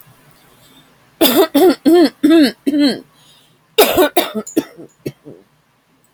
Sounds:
Cough